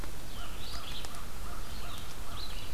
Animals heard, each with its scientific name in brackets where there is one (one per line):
American Crow (Corvus brachyrhynchos)
Red-eyed Vireo (Vireo olivaceus)